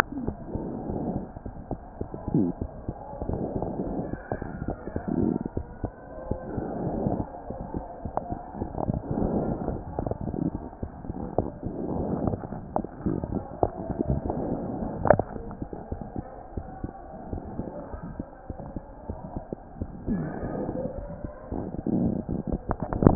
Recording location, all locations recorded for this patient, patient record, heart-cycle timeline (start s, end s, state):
mitral valve (MV)
aortic valve (AV)+pulmonary valve (PV)+tricuspid valve (TV)+mitral valve (MV)
#Age: Child
#Sex: Male
#Height: 105.0 cm
#Weight: 18.1 kg
#Pregnancy status: False
#Murmur: Unknown
#Murmur locations: nan
#Most audible location: nan
#Systolic murmur timing: nan
#Systolic murmur shape: nan
#Systolic murmur grading: nan
#Systolic murmur pitch: nan
#Systolic murmur quality: nan
#Diastolic murmur timing: nan
#Diastolic murmur shape: nan
#Diastolic murmur grading: nan
#Diastolic murmur pitch: nan
#Diastolic murmur quality: nan
#Outcome: Abnormal
#Campaign: 2015 screening campaign
0.00	16.52	unannotated
16.52	16.66	S1
16.66	16.79	systole
16.79	16.90	S2
16.90	17.27	diastole
17.27	17.42	S1
17.42	17.56	systole
17.56	17.68	S2
17.68	17.89	diastole
17.89	18.00	S1
18.00	18.16	systole
18.16	18.25	S2
18.25	18.48	diastole
18.48	18.56	S1
18.56	18.74	systole
18.74	18.84	S2
18.84	19.06	diastole
19.06	19.20	S1
19.20	19.32	systole
19.32	19.42	S2
19.42	19.76	diastole
19.76	19.88	S1
19.88	23.15	unannotated